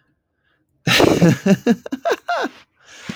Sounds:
Laughter